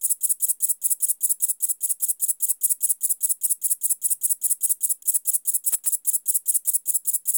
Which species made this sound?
Liara magna